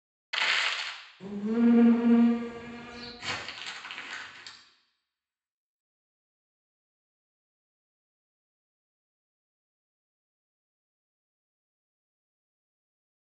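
First, at 0.3 seconds, there is crackling. Afterwards, at 1.19 seconds, an insect is heard. Finally, at 3.18 seconds, crumpling is audible.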